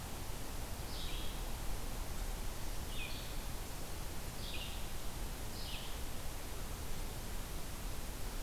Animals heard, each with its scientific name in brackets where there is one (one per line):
Red-eyed Vireo (Vireo olivaceus)